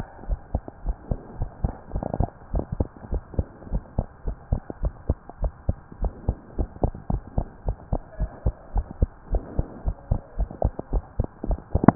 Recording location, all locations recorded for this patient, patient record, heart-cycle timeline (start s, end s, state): pulmonary valve (PV)
aortic valve (AV)+pulmonary valve (PV)+tricuspid valve (TV)+mitral valve (MV)
#Age: Child
#Sex: Female
#Height: 121.0 cm
#Weight: 24.8 kg
#Pregnancy status: False
#Murmur: Absent
#Murmur locations: nan
#Most audible location: nan
#Systolic murmur timing: nan
#Systolic murmur shape: nan
#Systolic murmur grading: nan
#Systolic murmur pitch: nan
#Systolic murmur quality: nan
#Diastolic murmur timing: nan
#Diastolic murmur shape: nan
#Diastolic murmur grading: nan
#Diastolic murmur pitch: nan
#Diastolic murmur quality: nan
#Outcome: Normal
#Campaign: 2015 screening campaign
0.00	3.10	unannotated
3.10	3.22	S1
3.22	3.36	systole
3.36	3.46	S2
3.46	3.68	diastole
3.68	3.82	S1
3.82	3.96	systole
3.96	4.06	S2
4.06	4.26	diastole
4.26	4.38	S1
4.38	4.50	systole
4.50	4.60	S2
4.60	4.80	diastole
4.80	4.94	S1
4.94	5.06	systole
5.06	5.18	S2
5.18	5.40	diastole
5.40	5.52	S1
5.52	5.66	systole
5.66	5.76	S2
5.76	6.00	diastole
6.00	6.14	S1
6.14	6.26	systole
6.26	6.36	S2
6.36	6.58	diastole
6.58	6.68	S1
6.68	6.82	systole
6.82	6.96	S2
6.96	7.10	diastole
7.10	7.24	S1
7.24	7.36	systole
7.36	7.50	S2
7.50	7.66	diastole
7.66	7.76	S1
7.76	7.90	systole
7.90	8.02	S2
8.02	8.20	diastole
8.20	8.32	S1
8.32	8.44	systole
8.44	8.56	S2
8.56	8.74	diastole
8.74	8.86	S1
8.86	8.96	systole
8.96	9.12	S2
9.12	9.30	diastole
9.30	9.44	S1
9.44	9.56	systole
9.56	9.68	S2
9.68	9.86	diastole
9.86	9.96	S1
9.96	10.10	systole
10.10	10.22	S2
10.22	10.38	diastole
10.38	10.50	S1
10.50	10.64	systole
10.64	10.74	S2
10.74	10.92	diastole
10.92	11.04	S1
11.04	11.16	systole
11.16	11.28	S2
11.28	11.44	diastole
11.44	11.60	S1
11.60	11.72	systole
11.72	11.82	S2
11.82	11.95	unannotated